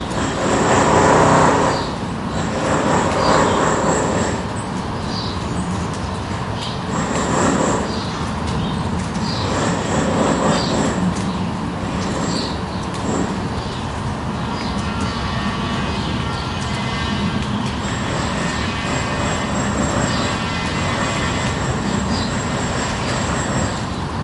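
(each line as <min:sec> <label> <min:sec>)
0:00.0 Drilling sounds repeat. 0:04.6
0:00.1 Birds singing quietly in the background. 0:24.2
0:06.9 Drilling sounds repeat. 0:13.7
0:15.0 Sawing sounds continue in the background. 0:24.2
0:17.9 Drilling sounds repeat. 0:24.2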